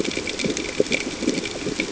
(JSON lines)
{"label": "ambient", "recorder": "HydroMoth"}